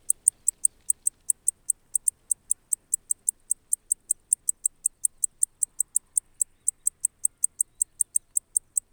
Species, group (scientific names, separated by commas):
Decticus albifrons, Orthoptera